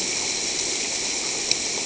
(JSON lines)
{"label": "ambient", "recorder": "HydroMoth"}